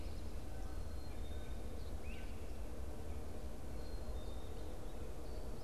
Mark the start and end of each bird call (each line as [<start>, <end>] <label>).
[0.00, 5.64] Great Crested Flycatcher (Myiarchus crinitus)